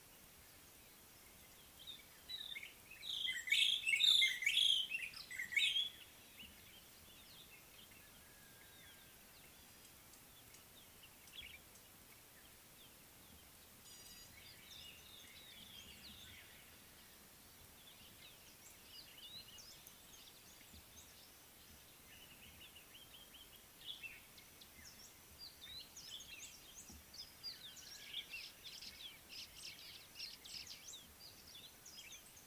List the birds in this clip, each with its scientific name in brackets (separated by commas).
Gray-backed Camaroptera (Camaroptera brevicaudata), White-browed Robin-Chat (Cossypha heuglini), African Paradise-Flycatcher (Terpsiphone viridis), White-browed Sparrow-Weaver (Plocepasser mahali)